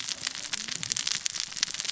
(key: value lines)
label: biophony, cascading saw
recorder: SoundTrap 600 or HydroMoth